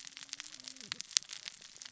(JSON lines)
{"label": "biophony, cascading saw", "recorder": "SoundTrap 600 or HydroMoth"}